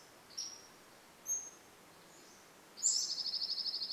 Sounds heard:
Dark-eyed Junco song
Pacific-slope Flycatcher song

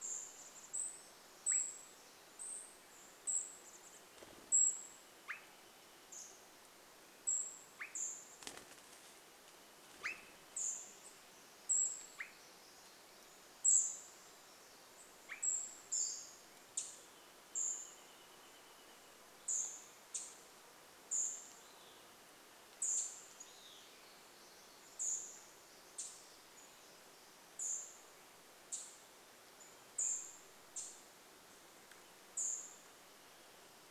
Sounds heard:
Swainson's Thrush call
unidentified bird chip note
Pacific Wren song
Cedar Waxwing call
warbler song
Pacific-slope Flycatcher call
Wrentit song
Chestnut-backed Chickadee call
bird wingbeats
unidentified sound

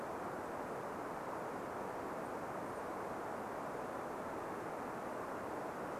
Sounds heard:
Varied Thrush song
Golden-crowned Kinglet call

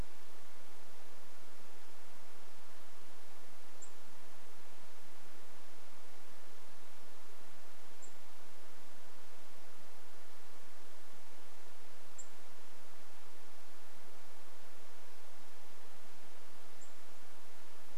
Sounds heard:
unidentified bird chip note

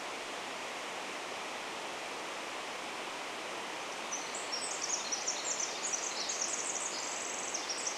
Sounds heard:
Pacific Wren song

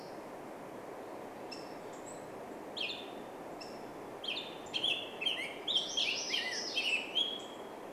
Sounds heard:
Black-headed Grosbeak call
MacGillivray's Warbler song
Black-headed Grosbeak song

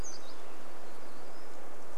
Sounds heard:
warbler song

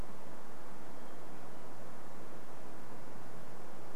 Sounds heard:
Hermit Thrush song

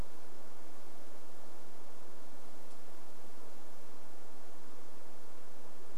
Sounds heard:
Varied Thrush song

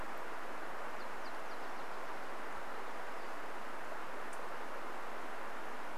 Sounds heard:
Nashville Warbler song
Pacific-slope Flycatcher call

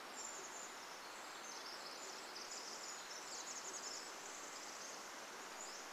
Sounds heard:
Pacific-slope Flycatcher song
Pacific Wren song

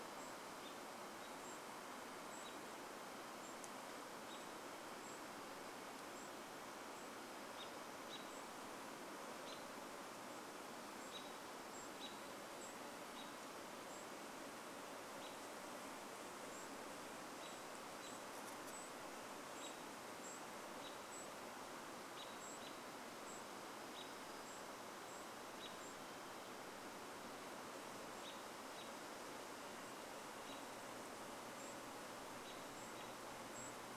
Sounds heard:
Golden-crowned Kinglet call
American Robin call
insect buzz

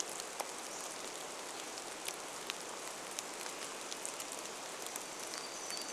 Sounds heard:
Hermit Warbler song
Hammond's Flycatcher song
rain

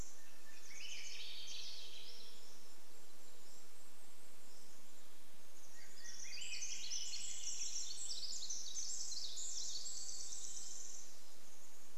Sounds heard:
Pacific Wren song
Golden-crowned Kinglet song
unidentified sound
warbler song
Swainson's Thrush song
Pacific-slope Flycatcher song

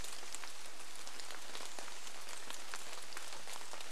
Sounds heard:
rain

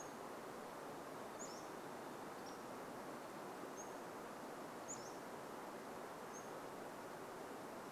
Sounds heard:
Pacific-slope Flycatcher song

